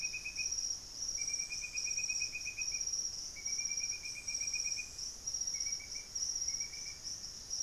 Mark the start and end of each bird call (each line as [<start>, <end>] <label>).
[5.30, 7.60] Black-faced Antthrush (Formicarius analis)